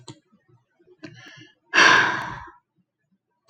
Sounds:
Sigh